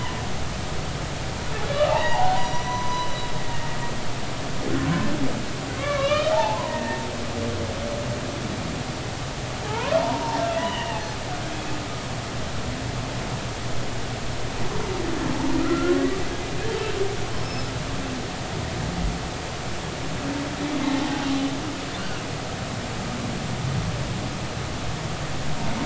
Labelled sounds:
1.9	3.2	humpback whale, 0.80 to 6.0 kHz
5.8	7.1	humpback whale, 0.80 to 3.2 kHz
9.7	11.0	humpback whale, 0.80 to 3.1 kHz
15.6	16.0	humpback whale, 1.2 to 1.5 kHz
17.4	17.7	humpback whale, 5.1 to 5.4 kHz

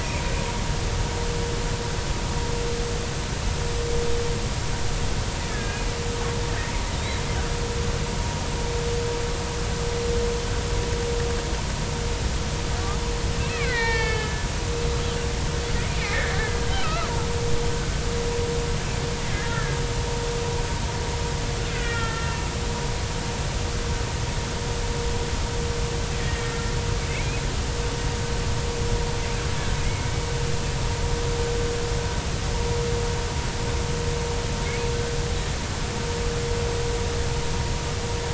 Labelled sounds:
5.5	5.9	killer whale, Bigg's (transient), 1.6 to 2.5 kHz
7.0	7.2	killer whale, Bigg's (transient), 3.6 to 4.0 kHz
13.5	14.5	killer whale, Bigg's (transient), 0.83 to 5.0 kHz
16.0	16.3	killer whale, Bigg's (transient), 2.0 to 2.6 kHz
16.8	17.3	killer whale, Bigg's (transient), 0.83 to 2.8 kHz
19.5	19.8	killer whale, Bigg's (transient), 1.6 to 1.9 kHz
21.7	22.4	killer whale, Bigg's (transient), 1.3 to 3.3 kHz
26.2	27.4	killer whale, Bigg's (transient), 1.8 to 2.6 kHz
29.8	30.2	killer whale, Bigg's (transient), 2.1 to 2.3 kHz

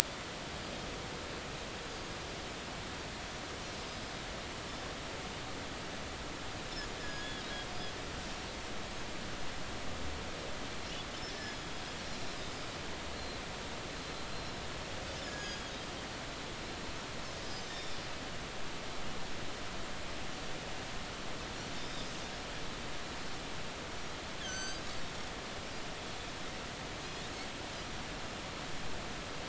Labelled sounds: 7.0	7.5	Pacific white-sided dolphin, 3.1 to 6.8 kHz
8.0	8.3	Pacific white-sided dolphin, 1.6 to 5.3 kHz
11.4	11.7	Pacific white-sided dolphin, 5.0 to 5.3 kHz
13.1	13.4	Pacific white-sided dolphin, 4.0 to 4.4 kHz
14.3	14.6	Pacific white-sided dolphin, 3.9 to 5.6 kHz
15.2	15.7	Pacific white-sided dolphin, 1.6 to 7.0 kHz
17.4	18.0	Pacific white-sided dolphin, 3.4 to 6.3 kHz
21.7	22.1	Pacific white-sided dolphin, 4.9 to 5.1 kHz
24.4	24.8	Pacific white-sided dolphin, 1.5 to 8.0 kHz

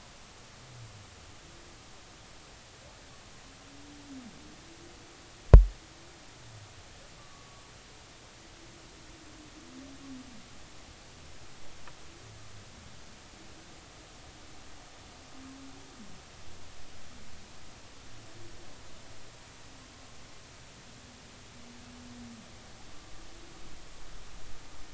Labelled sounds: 7.3	7.6	humpback whale, 1.1 to 1.2 kHz

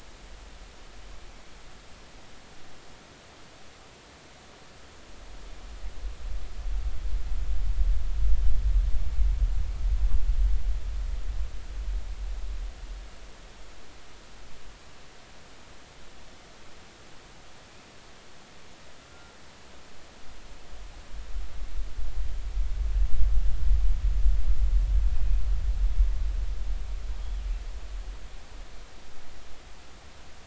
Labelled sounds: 19.1	19.4	killer whale, northern resident, G clan, call N24ii, 1.3 to 1.4 kHz
25.1	25.4	killer whale, northern resident, 2.4 to 2.5 kHz

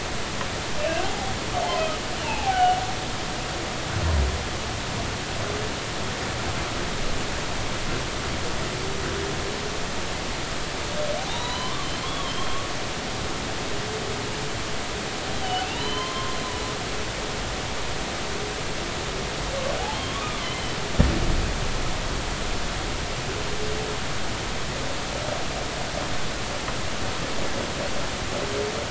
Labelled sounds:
0.8	1.3	humpback whale, 0.80 to 2.8 kHz
2.2	2.8	humpback whale, 0.80 to 2.8 kHz
11.3	12.6	humpback whale, 0.86 to 4.2 kHz
15.6	16.4	humpback whale, 0.90 to 4.2 kHz
19.9	20.4	humpback whale, 1.1 to 3.4 kHz

